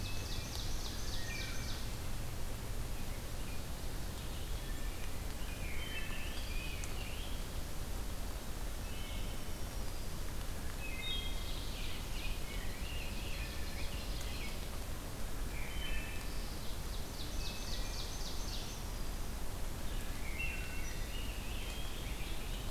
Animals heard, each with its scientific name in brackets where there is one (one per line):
Wood Thrush (Hylocichla mustelina)
Rose-breasted Grosbeak (Pheucticus ludovicianus)
Black-throated Green Warbler (Setophaga virens)
Eastern Wood-Pewee (Contopus virens)
Ovenbird (Seiurus aurocapilla)
Red-eyed Vireo (Vireo olivaceus)